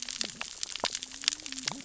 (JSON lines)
{"label": "biophony, cascading saw", "recorder": "SoundTrap 600 or HydroMoth"}